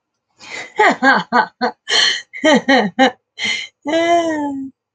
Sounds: Laughter